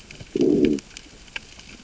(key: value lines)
label: biophony, growl
recorder: SoundTrap 600 or HydroMoth